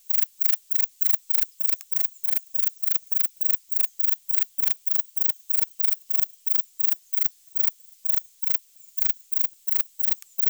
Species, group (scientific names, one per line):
Platycleis albopunctata
Orthoptera